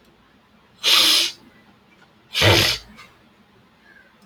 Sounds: Sniff